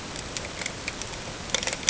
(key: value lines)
label: ambient
recorder: HydroMoth